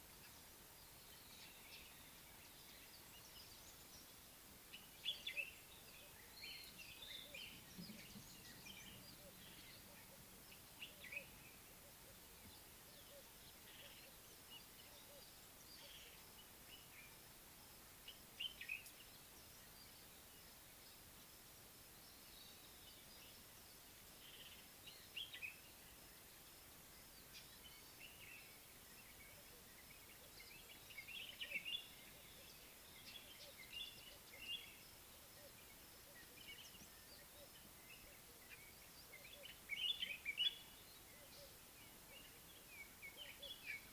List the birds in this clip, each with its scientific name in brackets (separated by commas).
Northern Puffback (Dryoscopus gambensis), Common Bulbul (Pycnonotus barbatus), Slate-colored Boubou (Laniarius funebris), White-browed Robin-Chat (Cossypha heuglini)